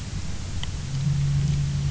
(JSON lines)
{"label": "anthrophony, boat engine", "recorder": "SoundTrap 300"}